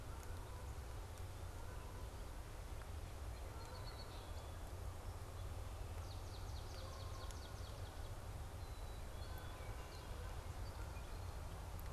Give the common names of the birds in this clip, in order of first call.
Canada Goose, Song Sparrow, Swamp Sparrow, Black-capped Chickadee